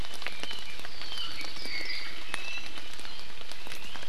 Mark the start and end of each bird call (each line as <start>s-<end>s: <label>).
0.0s-2.1s: Apapane (Himatione sanguinea)
2.3s-2.8s: Iiwi (Drepanis coccinea)